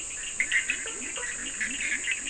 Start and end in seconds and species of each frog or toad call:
0.0	2.2	Bischoff's tree frog
0.0	2.2	Leptodactylus latrans
0.0	2.2	Cochran's lime tree frog
0.7	1.4	blacksmith tree frog
Atlantic Forest, 3:00am

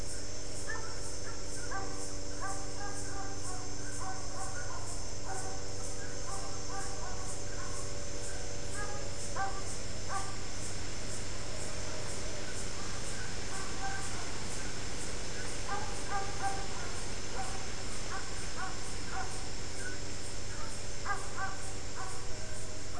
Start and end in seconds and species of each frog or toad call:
none
Cerrado, 5:45pm

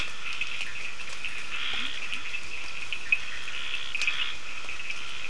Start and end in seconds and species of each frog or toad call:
0.0	5.2	Scinax perereca
0.0	5.2	Cochran's lime tree frog
1.6	2.4	Leptodactylus latrans
Atlantic Forest, 4:30am

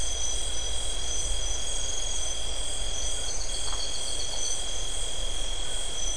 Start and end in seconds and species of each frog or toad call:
3.6	3.8	Phyllomedusa distincta
Atlantic Forest, 9:30pm

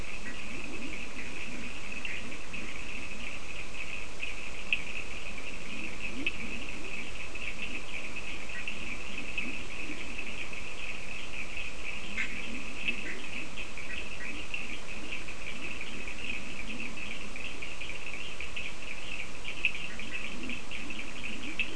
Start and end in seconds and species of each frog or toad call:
0.0	10.7	Leptodactylus latrans
0.0	21.7	Cochran's lime tree frog
11.8	17.8	Leptodactylus latrans
12.0	14.6	Bischoff's tree frog
19.5	21.7	Leptodactylus latrans
19.8	20.3	Bischoff's tree frog
Atlantic Forest, 4:00am

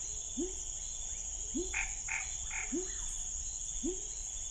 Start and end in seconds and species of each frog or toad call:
0.0	4.5	pepper frog
1.7	2.8	Scinax fuscovarius
Cerrado, 9:00pm

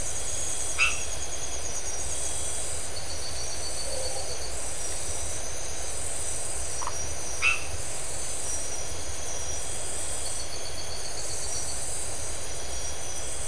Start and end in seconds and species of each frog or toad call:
0.7	1.1	white-edged tree frog
6.8	6.9	Phyllomedusa distincta
7.3	7.7	white-edged tree frog
Atlantic Forest, 1:15am

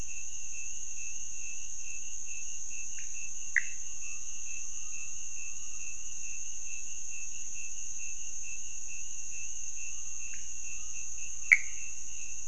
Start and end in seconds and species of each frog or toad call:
3.0	3.3	pointedbelly frog
3.3	4.0	Pithecopus azureus
10.1	10.7	pointedbelly frog
11.5	11.8	Pithecopus azureus
Cerrado, 1:15am

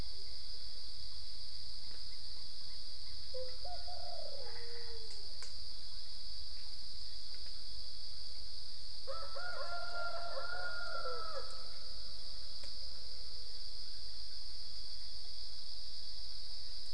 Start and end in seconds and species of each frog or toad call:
4.4	5.2	Boana albopunctata
Cerrado, 4:15am

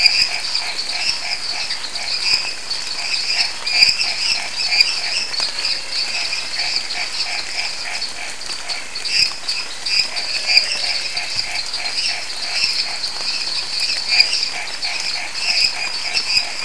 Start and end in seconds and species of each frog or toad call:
0.0	9.0	Chaco tree frog
0.0	16.6	lesser tree frog
0.0	16.6	dwarf tree frog
0.0	16.6	Pithecopus azureus
10.0	16.6	Chaco tree frog
11.3	14.6	Elachistocleis matogrosso
Cerrado, 9:15pm

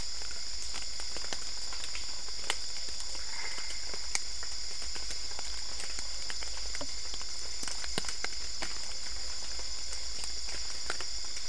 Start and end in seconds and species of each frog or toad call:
3.1	4.0	Boana albopunctata
Cerrado, 11:30pm

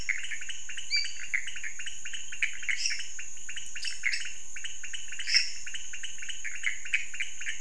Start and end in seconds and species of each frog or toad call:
0.0	7.6	pointedbelly frog
0.0	7.6	Pithecopus azureus
2.7	3.2	lesser tree frog
3.7	4.5	dwarf tree frog
5.1	5.8	lesser tree frog
Cerrado, 12:00am

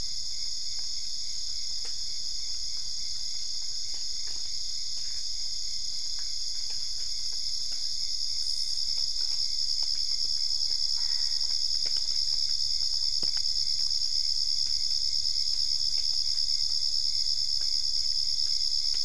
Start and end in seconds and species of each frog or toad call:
10.6	11.8	Boana albopunctata
Cerrado, 1:15am

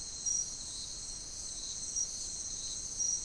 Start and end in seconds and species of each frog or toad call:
none
Atlantic Forest, 1:15am

